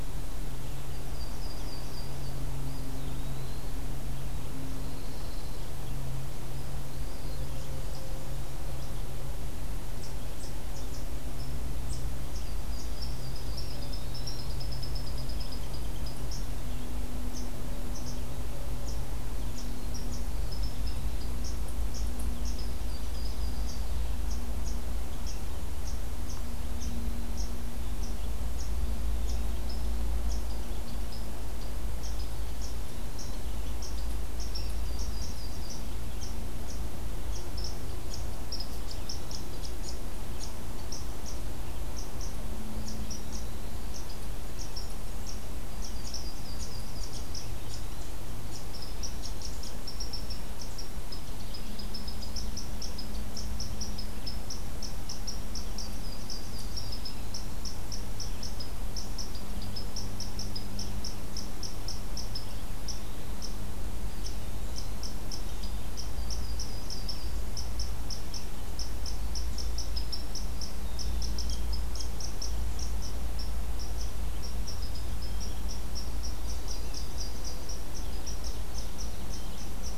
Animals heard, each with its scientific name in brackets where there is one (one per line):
Yellow-rumped Warbler (Setophaga coronata)
Eastern Wood-Pewee (Contopus virens)
Eastern Chipmunk (Tamias striatus)
Pine Warbler (Setophaga pinus)